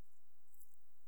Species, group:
Nemobius sylvestris
Orthoptera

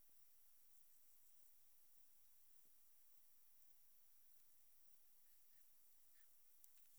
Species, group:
Metrioptera saussuriana
Orthoptera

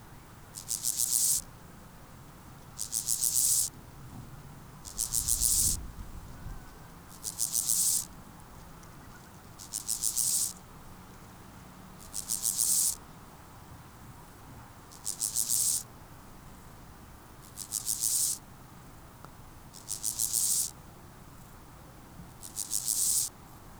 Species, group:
Chorthippus dorsatus
Orthoptera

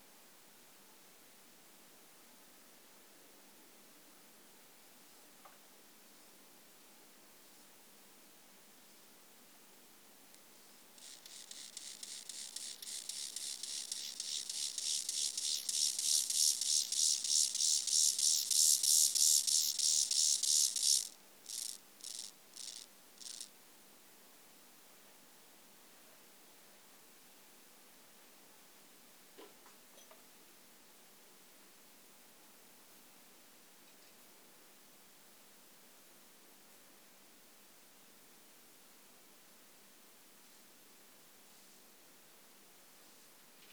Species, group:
Chorthippus mollis
Orthoptera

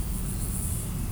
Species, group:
Chorthippus dorsatus
Orthoptera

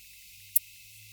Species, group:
Poecilimon ornatus
Orthoptera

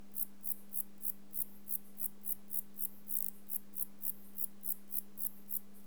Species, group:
Zeuneriana abbreviata
Orthoptera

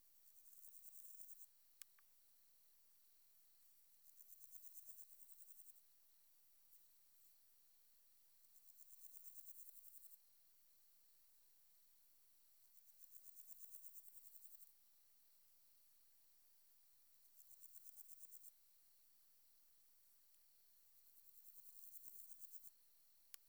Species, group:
Pseudochorthippus parallelus
Orthoptera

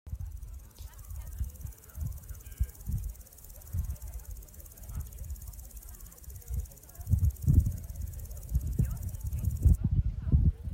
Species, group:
Omocestus viridulus
Orthoptera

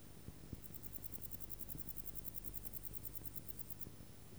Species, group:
Pholidoptera stankoi
Orthoptera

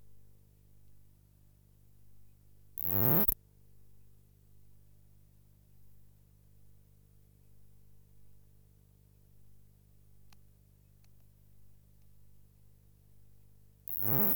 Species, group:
Poecilimon lodosi
Orthoptera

